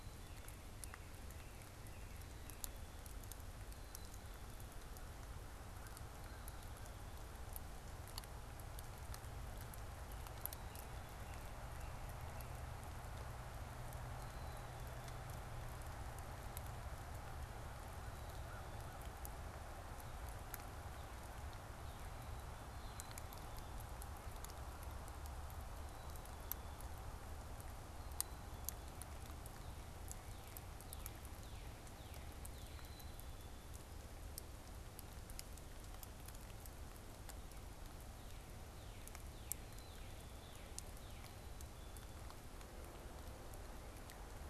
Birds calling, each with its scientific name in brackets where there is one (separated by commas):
American Crow (Corvus brachyrhynchos), Northern Cardinal (Cardinalis cardinalis), Black-capped Chickadee (Poecile atricapillus)